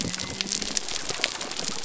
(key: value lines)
label: biophony
recorder: SoundTrap 300